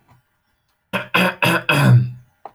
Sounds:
Throat clearing